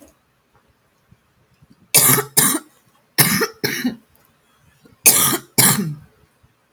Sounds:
Cough